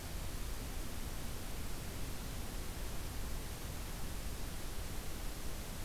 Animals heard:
forest ambience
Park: Acadia National Park